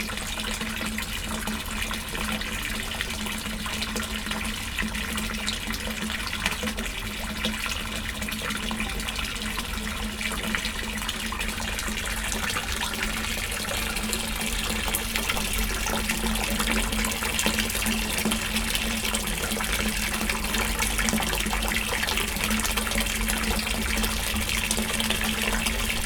What is being run?
water